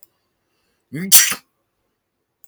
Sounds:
Sneeze